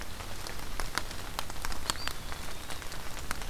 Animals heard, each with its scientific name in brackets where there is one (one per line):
Eastern Wood-Pewee (Contopus virens)